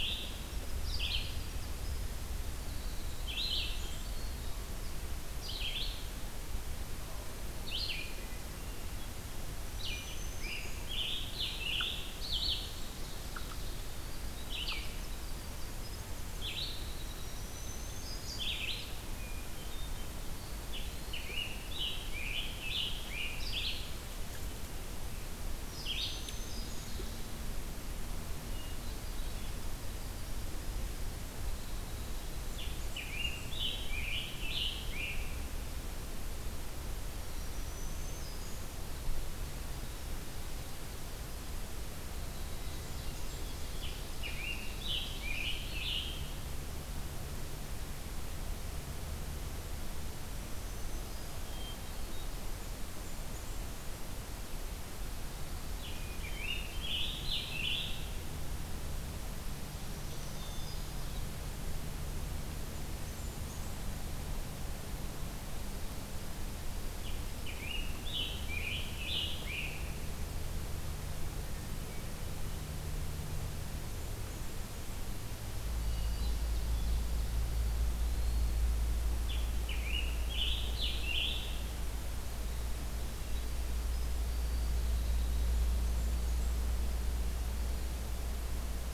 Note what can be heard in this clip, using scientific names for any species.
Piranga olivacea, Vireo olivaceus, Troglodytes hiemalis, Setophaga fusca, Setophaga virens, Catharus guttatus, Contopus virens, Seiurus aurocapilla